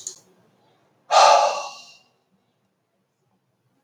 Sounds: Sigh